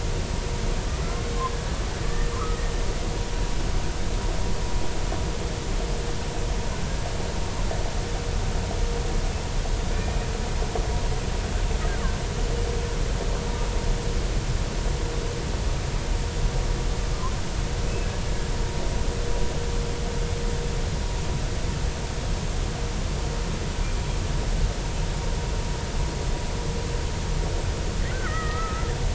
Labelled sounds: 2.1	2.6	killer whale, Bigg's (transient), 0.96 to 2.0 kHz
9.9	10.3	killer whale, Bigg's (transient), 2.3 to 2.5 kHz
28.1	28.9	killer whale, Bigg's (transient), 1.2 to 2.2 kHz

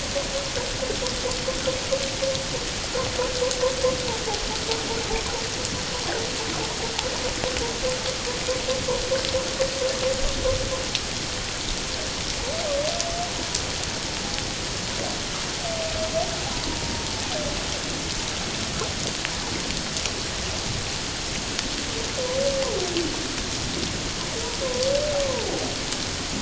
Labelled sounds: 25.2	25.5	humpback whale, 0.84 to 1.2 kHz

